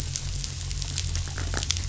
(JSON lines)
{"label": "anthrophony, boat engine", "recorder": "SoundTrap 500"}